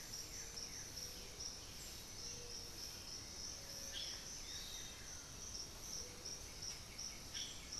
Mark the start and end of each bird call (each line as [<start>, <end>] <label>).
[0.00, 7.79] Blue-gray Saltator (Saltator coerulescens)
[1.07, 3.37] Black-throated Antbird (Myrmophylax atrothorax)
[4.37, 7.79] Piratic Flycatcher (Legatus leucophaius)
[5.87, 7.79] White-winged Becard (Pachyramphus polychopterus)